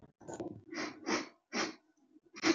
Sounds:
Sniff